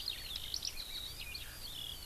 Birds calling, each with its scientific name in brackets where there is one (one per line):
Eurasian Skylark (Alauda arvensis)